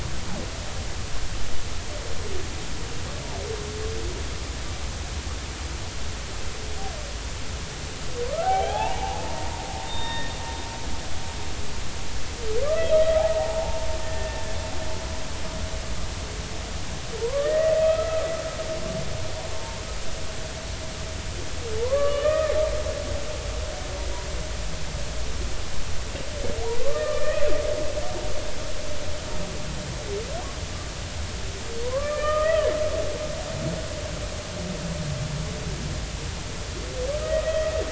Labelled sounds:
8.4	10.3	humpback whale, 0.80 to 3.7 kHz
12.7	13.0	humpback whale, 3.1 to 3.3 kHz
13.6	14.6	humpback whale, 0.80 to 1.9 kHz
17.2	18.3	humpback whale, 0.86 to 2.0 kHz
19.5	19.8	humpback whale, 0.86 to 0.96 kHz
21.8	22.5	humpback whale, 0.83 to 3.1 kHz
26.8	27.5	humpback whale, 1.0 to 2.6 kHz
31.8	32.7	humpback whale, 0.93 to 2.5 kHz
37.4	37.7	humpback whale, 1.9 to 2.0 kHz

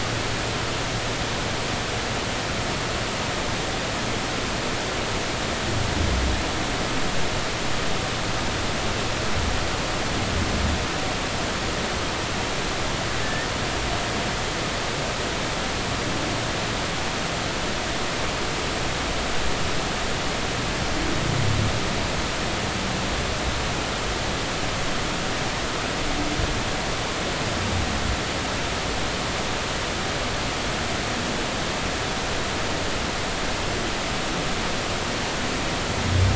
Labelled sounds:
13.2	13.5	humpback whale, 1.7 to 1.9 kHz

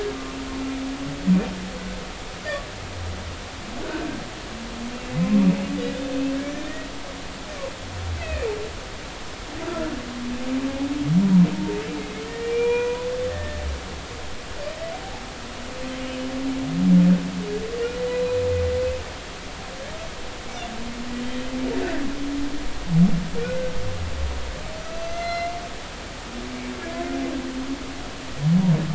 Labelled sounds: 6.4	6.7	humpback whale, 1.6 to 2.5 kHz
8.2	8.5	humpback whale, 1.7 to 2.7 kHz
12.3	13.6	humpback whale, 0.90 to 2.5 kHz
16.0	16.3	humpback whale, 2.8 to 3.1 kHz
18.1	18.4	humpback whale, 3.9 to 4.0 kHz
23.4	23.7	humpback whale, 1.4 to 1.6 kHz
25.0	25.5	humpback whale, 1.3 to 6.3 kHz

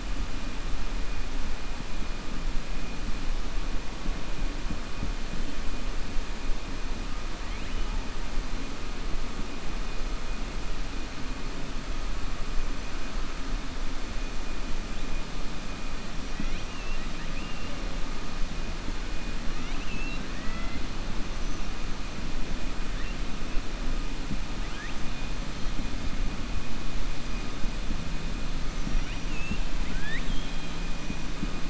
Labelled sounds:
16.3	17.7	killer whale, 1.4 to 4.0 kHz
19.5	20.8	killer whale, 0.66 to 4.0 kHz
28.9	30.8	killer whale, 1.5 to 4.1 kHz

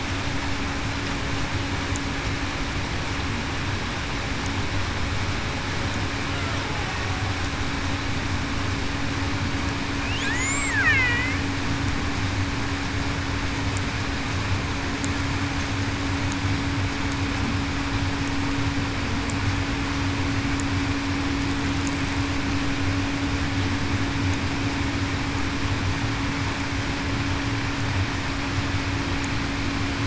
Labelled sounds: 10.2	10.9	killer whale, Bigg's (transient), 1.1 to 7.7 kHz

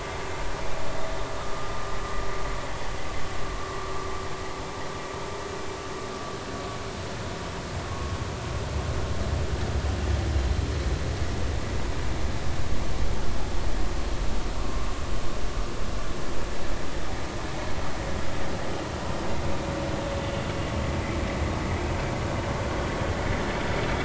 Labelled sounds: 7.8	8.1	vessel noise, 1.0 to 1.1 kHz
14.6	14.9	vessel noise, 1.0 to 1.2 kHz

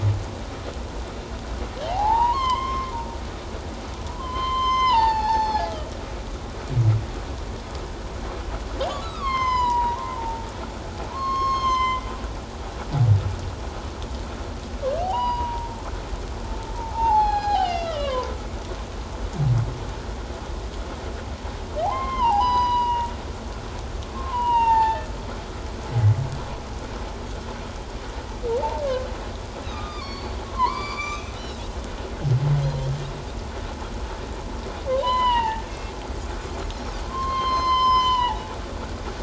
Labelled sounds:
1.8	2.9	humpback whale, 0.78 to 5.4 kHz
4.1	5.7	humpback whale, 0.78 to 6.3 kHz
9.0	10.5	humpback whale, 0.84 to 7.2 kHz
11.1	12.0	humpback whale, 0.91 to 7.4 kHz
15.0	15.8	humpback whale, 0.78 to 4.9 kHz
16.7	18.3	humpback whale, 0.78 to 5.7 kHz
21.8	23.1	humpback whale, 0.78 to 6.0 kHz
24.1	25.1	humpback whale, 0.81 to 3.9 kHz
29.7	31.6	humpback whale, 0.88 to 7.2 kHz
35.0	35.7	humpback whale, 0.81 to 4.2 kHz
37.1	38.5	humpback whale, 0.78 to 7.3 kHz

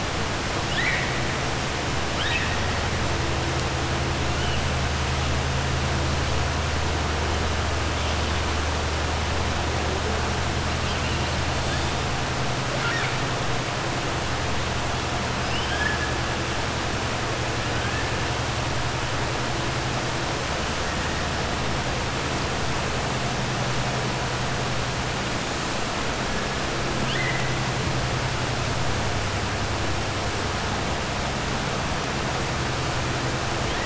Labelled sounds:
0.6	1.1	killer whale, 1.5 to 4.1 kHz
2.1	2.5	killer whale, 1.3 to 4.0 kHz
12.7	13.2	killer whale, 0.59 to 5.5 kHz
15.4	16.0	killer whale, 1.6 to 3.4 kHz
27.0	27.5	killer whale, 1.5 to 4.2 kHz

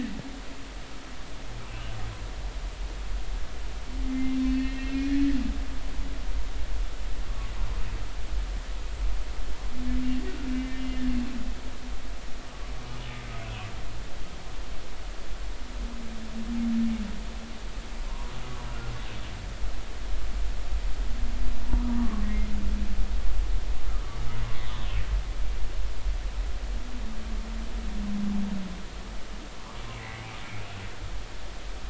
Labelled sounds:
4.0	5.1	humpback whale, 1.8 to 4.5 kHz
10.5	10.8	humpback whale, 2.0 to 2.1 kHz
18.1	18.3	humpback whale, 0.90 to 1.1 kHz
22.0	22.2	humpback whale, 1.0 to 1.2 kHz
29.9	30.2	humpback whale, 1.9 to 2.3 kHz

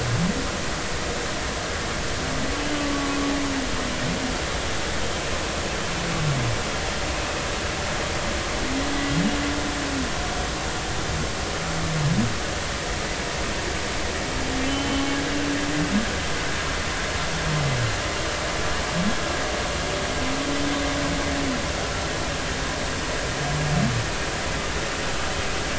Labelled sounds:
14.7	15.0	humpback whale, 2.9 to 3.1 kHz

